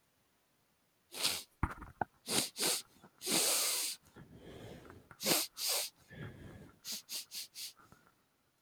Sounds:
Sniff